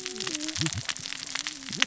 {"label": "biophony, cascading saw", "recorder": "SoundTrap 600 or HydroMoth"}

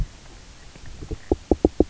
{"label": "biophony, knock", "recorder": "SoundTrap 300"}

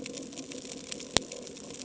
{"label": "ambient", "recorder": "HydroMoth"}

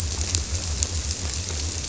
{"label": "biophony", "recorder": "SoundTrap 300"}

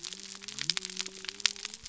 {"label": "biophony", "recorder": "SoundTrap 300"}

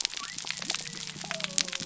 {"label": "biophony", "recorder": "SoundTrap 300"}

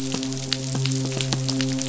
{"label": "biophony, midshipman", "recorder": "SoundTrap 500"}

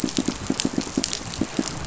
{"label": "biophony, pulse", "recorder": "SoundTrap 500"}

